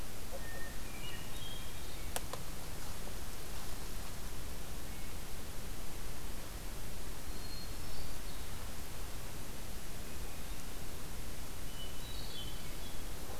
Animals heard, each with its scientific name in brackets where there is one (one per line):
Hermit Thrush (Catharus guttatus)